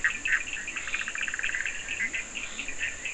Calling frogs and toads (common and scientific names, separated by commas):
Bischoff's tree frog (Boana bischoffi), Leptodactylus latrans, Cochran's lime tree frog (Sphaenorhynchus surdus)